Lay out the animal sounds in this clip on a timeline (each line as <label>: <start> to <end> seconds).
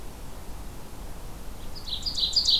Ovenbird (Seiurus aurocapilla): 1.6 to 2.6 seconds